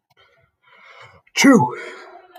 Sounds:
Sneeze